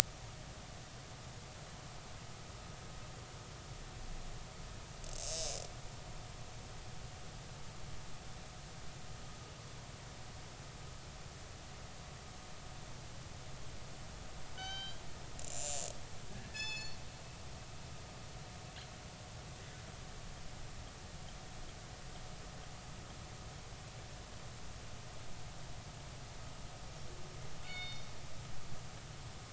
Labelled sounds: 14.5	15.0	killer whale, northern resident, G clan, call N24ii, 1.4 to 6.2 kHz
15.4	15.9	killer whale, northern resident, 6.9 to 7.4 kHz
16.3	17.0	killer whale, northern resident, G clan, call N24ii, 1.6 to 7.9 kHz
27.6	28.1	killer whale, northern resident, G clan, call N24ii, 2.1 to 5.2 kHz

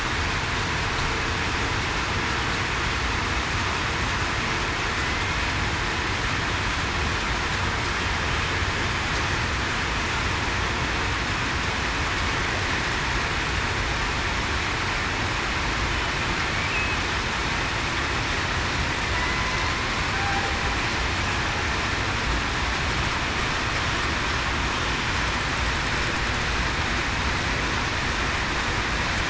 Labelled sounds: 5.0	5.4	killer whale, southern resident, 2.0 to 2.2 kHz

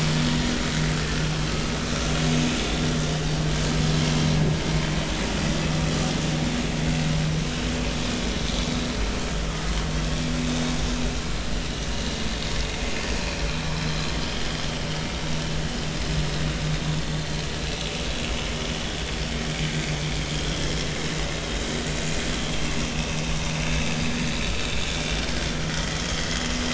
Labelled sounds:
22.9	23.2	vessel noise, 2.5 to 2.7 kHz
25.7	26.3	vessel noise, 3.0 to 3.5 kHz

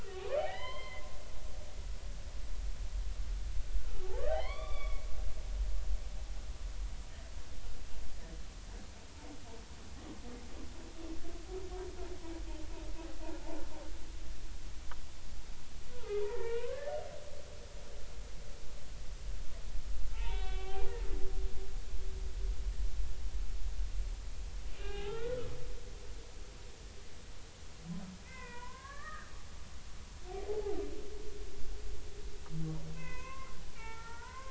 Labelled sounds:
0.0	1.0	humpback whale, 1.0 to 4.3 kHz
1.5	2.0	humpback whale, 0.90 to 1.1 kHz
4.1	5.0	humpback whale, 0.80 to 4.7 kHz
15.9	16.9	humpback whale, 0.93 to 2.7 kHz
20.1	20.9	humpback whale, 0.80 to 3.6 kHz
24.7	25.4	humpback whale, 0.80 to 3.8 kHz
28.2	29.3	humpback whale, 0.90 to 2.7 kHz
30.5	30.8	humpback whale, 0.80 to 0.90 kHz
32.9	34.4	humpback whale, 0.83 to 2.7 kHz

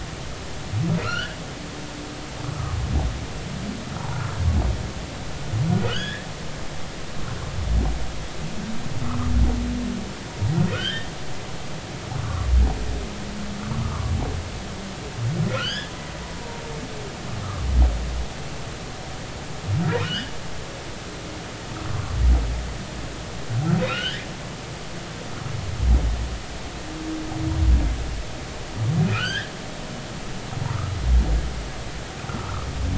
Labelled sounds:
1.0	1.4	humpback whale, 1.2 to 3.1 kHz
5.9	6.3	humpback whale, 1.2 to 3.6 kHz
10.7	11.1	humpback whale, 1.2 to 3.5 kHz
15.5	15.9	humpback whale, 1.2 to 5.3 kHz
20.0	20.3	humpback whale, 1.3 to 3.5 kHz
23.9	24.3	humpback whale, 1.2 to 2.1 kHz
24.8	25.2	humpback whale, 2.4 to 3.3 kHz
29.1	29.5	humpback whale, 1.2 to 3.8 kHz
32.3	32.7	humpback whale, 1.0 to 1.4 kHz

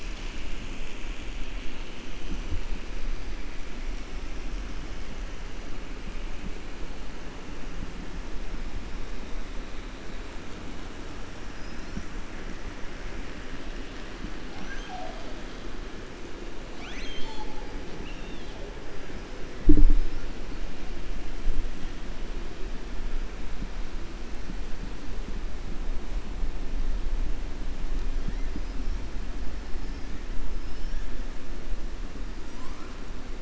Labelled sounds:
16.7	17.6	killer whale, 0.84 to 7.8 kHz
17.9	18.5	killer whale, 2.6 to 4.2 kHz
28.5	29.0	killer whale, 4.9 to 5.7 kHz

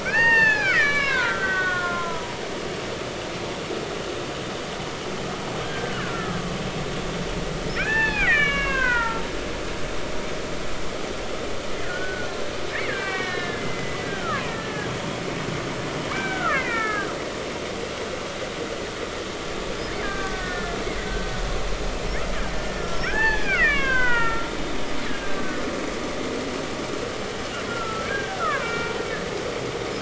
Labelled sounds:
0.0	2.4	killer whale, Bigg's (transient), 0.80 to 5.6 kHz
5.6	6.4	killer whale, Bigg's (transient), 1.2 to 1.8 kHz
7.7	9.3	killer whale, Bigg's (transient), 0.80 to 4.1 kHz
11.8	14.9	killer whale, Bigg's (transient), 0.90 to 4.2 kHz
16.1	17.1	killer whale, Bigg's (transient), 1.0 to 2.8 kHz
20.0	21.3	killer whale, Bigg's (transient), 1.1 to 1.9 kHz
22.5	24.5	killer whale, Bigg's (transient), 0.80 to 3.5 kHz
25.1	25.6	killer whale, Bigg's (transient), 1.4 to 1.7 kHz
27.7	28.9	killer whale, Bigg's (transient), 0.83 to 2.4 kHz

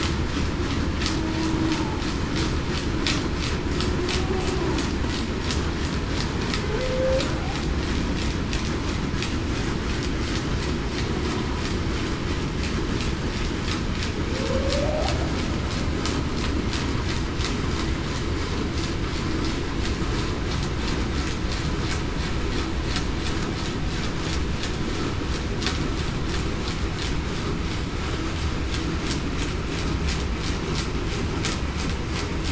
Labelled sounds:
6.7	7.2	humpback whale, 0.40 to 0.61 kHz
14.4	15.1	humpback whale, 0.45 to 0.80 kHz

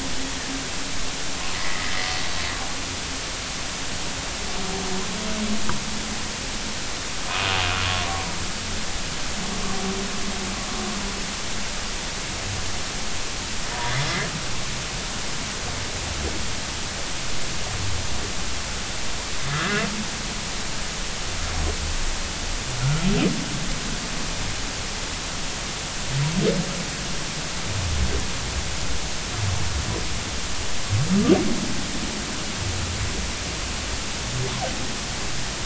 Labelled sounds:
1.6	1.9	humpback whale, 1.6 to 2.1 kHz
19.5	19.9	humpback whale, 1.2 to 1.9 kHz

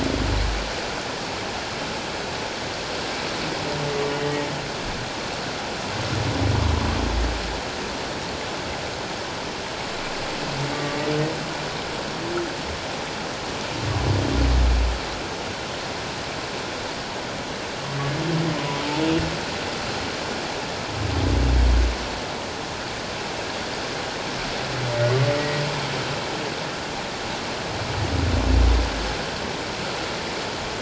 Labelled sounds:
4.2	4.4	humpback whale, 1.8 to 1.9 kHz
10.7	11.0	humpback whale, 1.1 to 1.2 kHz
25.4	25.6	humpback whale, 1.9 to 2.0 kHz

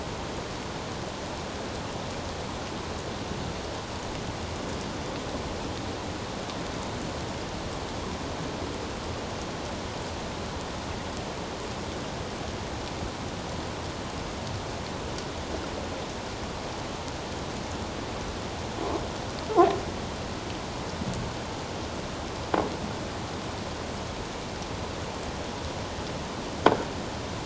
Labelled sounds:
19.5	19.8	croaking sound likely from a nearby submerged object, 0.78 to 1.2 kHz

